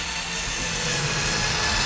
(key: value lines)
label: anthrophony, boat engine
recorder: SoundTrap 500